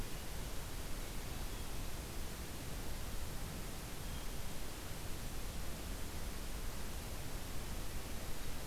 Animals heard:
forest ambience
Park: Acadia National Park